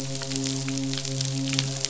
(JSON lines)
{"label": "biophony, midshipman", "recorder": "SoundTrap 500"}